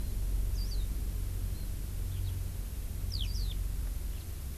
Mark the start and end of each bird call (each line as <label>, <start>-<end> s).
Warbling White-eye (Zosterops japonicus), 0.5-0.9 s
Eurasian Skylark (Alauda arvensis), 2.1-2.3 s
Eurasian Skylark (Alauda arvensis), 3.1-3.3 s
Warbling White-eye (Zosterops japonicus), 3.2-3.6 s